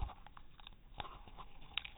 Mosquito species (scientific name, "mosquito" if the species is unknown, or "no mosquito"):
no mosquito